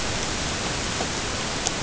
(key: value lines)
label: ambient
recorder: HydroMoth